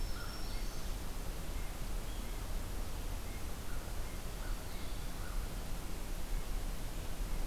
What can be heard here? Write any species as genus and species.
Corvus brachyrhynchos, Setophaga virens, Sitta canadensis